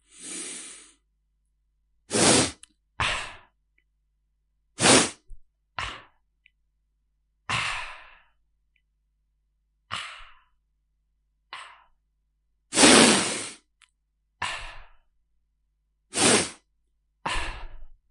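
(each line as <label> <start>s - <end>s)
A person exhales gently with a soft sniffing sound. 0.0s - 0.9s
A person exhales with a sniff followed by a soft breathy sound. 2.1s - 3.4s
A person inhales with a loud sniff followed by a low breathy sound. 4.8s - 6.1s
A person makes a soft breathy sound that starts loud and then fades. 7.5s - 8.2s
A person makes a brief, soft, low breathy sound indoors. 9.9s - 10.4s
A person makes a faint breathy sound for a short moment. 11.5s - 11.8s
A person inhales with an aggressive sniff that starts loudly and then fades. 12.7s - 13.8s
A person makes a brief, moderate breathy sound. 14.4s - 15.0s
A person inhales repeatedly with moderate sniffs. 16.1s - 16.6s
A person makes a soft, brief breathy sound that fades. 17.2s - 18.1s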